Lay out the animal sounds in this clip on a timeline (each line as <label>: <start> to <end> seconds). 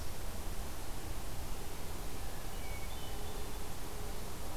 Hermit Thrush (Catharus guttatus): 2.4 to 3.7 seconds